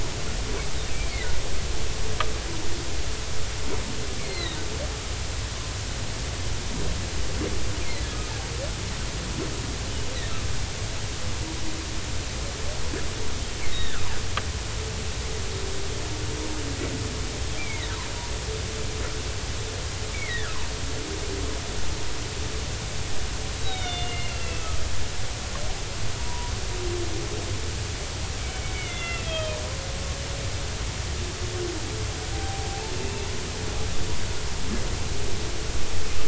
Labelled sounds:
4.2	4.6	humpback whale, 1.8 to 4.4 kHz
13.7	14.0	humpback whale, 1.2 to 3.8 kHz
18.6	18.9	humpback whale, 1.8 to 2.4 kHz
20.1	20.6	humpback whale, 1.2 to 2.4 kHz
23.6	24.7	humpback whale, 2.1 to 3.9 kHz
26.2	26.5	humpback whale, 0.90 to 1.1 kHz
28.7	29.6	humpback whale, 1.2 to 3.6 kHz
32.3	32.8	humpback whale, 0.80 to 0.83 kHz

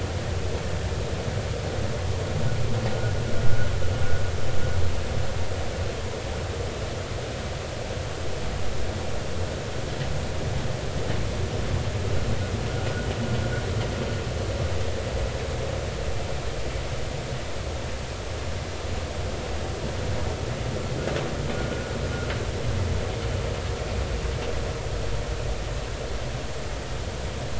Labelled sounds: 21.5	21.9	vessel noise, 1.4 to 1.5 kHz

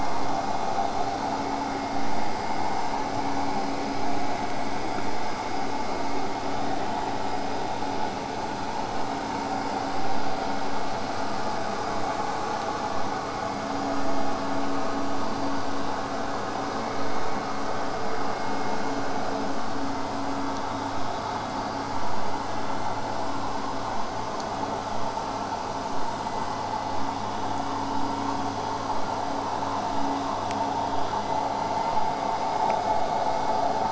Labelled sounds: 28.9	33.8	vessel noise, 0 to 8.0 kHz

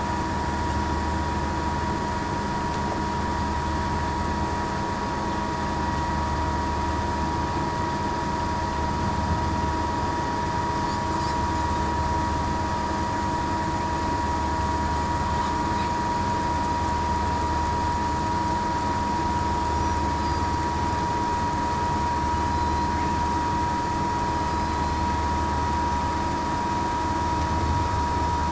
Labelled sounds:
22.4	22.9	killer whale, southern resident, 4.0 to 4.1 kHz

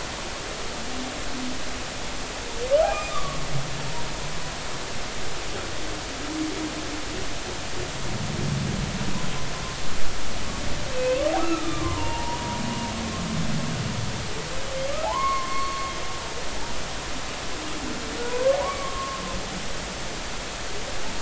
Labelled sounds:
2.8	3.4	humpback whale, 1.1 to 2.5 kHz
10.9	12.4	humpback whale, 0.80 to 3.6 kHz
15.0	15.9	humpback whale, 0.80 to 2.2 kHz
18.2	19.2	humpback whale, 0.93 to 1.2 kHz

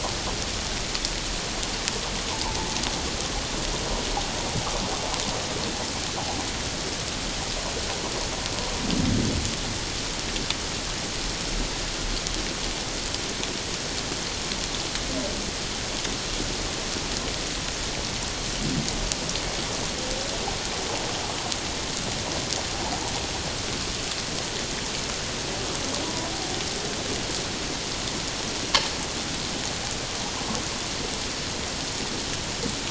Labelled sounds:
2.3	2.7	humpback whale, 0.84 to 1.1 kHz

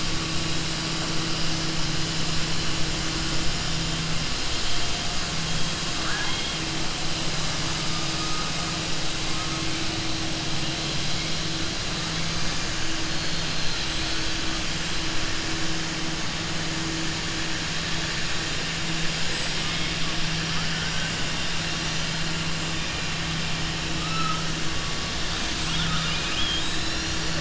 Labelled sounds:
5.9	6.6	killer whale, southern resident, 0.76 to 4.0 kHz

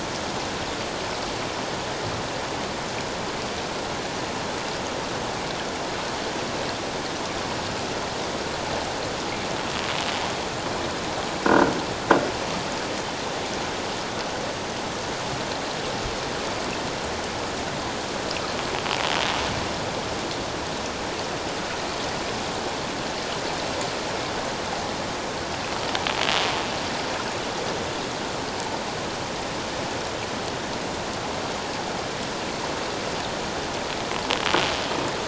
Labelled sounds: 11.4	11.7	croaking sound likely from a nearby submerged object, 1.4 to 1.6 kHz

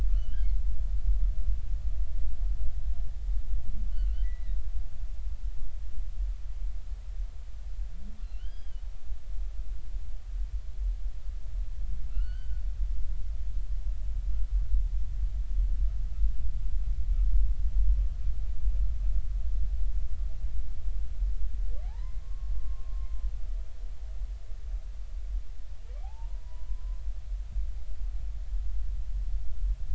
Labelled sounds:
0.1	0.5	humpback whale, 2.7 to 3.3 kHz
3.9	4.6	humpback whale, 1.3 to 3.2 kHz
8.2	8.8	humpback whale, 1.4 to 5.0 kHz
12.1	12.6	humpback whale, 1.3 to 4.7 kHz
21.8	22.9	humpback whale, 0.80 to 2.1 kHz
26.0	27.0	humpback whale, 0.80 to 1.1 kHz

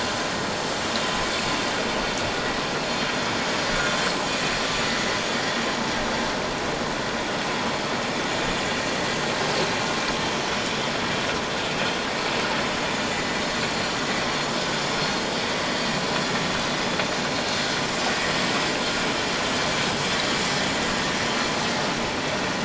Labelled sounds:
2.8	3.1	vessel noise, 4.2 to 4.3 kHz
13.1	14.1	vessel noise, 1.9 to 5.8 kHz

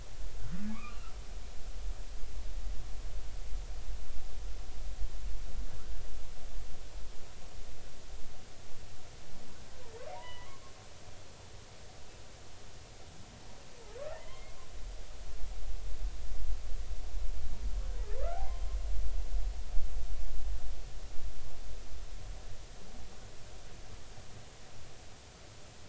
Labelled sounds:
0.7	1.1	humpback whale, 1.1 to 2.9 kHz
10.2	10.6	humpback whale, 0.90 to 3.0 kHz
14.2	14.6	humpback whale, 2.0 to 3.2 kHz

